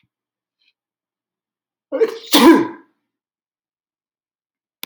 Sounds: Sneeze